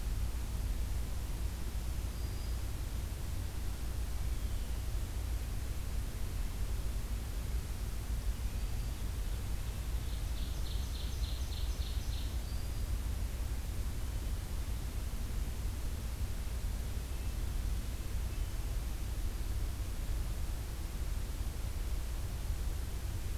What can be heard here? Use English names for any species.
Black-throated Green Warbler, Ovenbird, Red-breasted Nuthatch